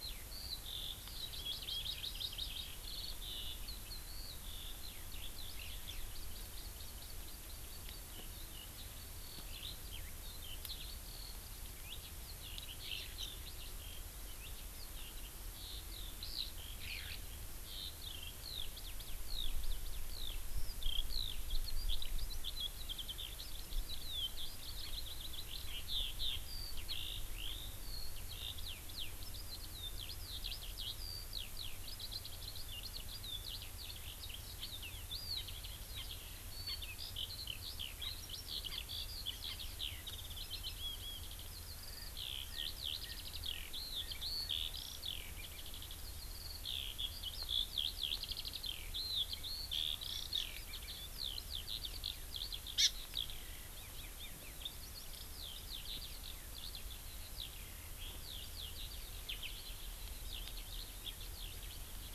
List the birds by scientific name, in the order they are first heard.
Alauda arvensis, Chlorodrepanis virens, Pternistis erckelii